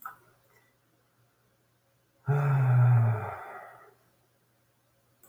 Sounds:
Sigh